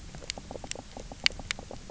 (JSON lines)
{"label": "biophony, knock croak", "recorder": "SoundTrap 300"}